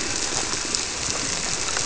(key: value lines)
label: biophony
recorder: SoundTrap 300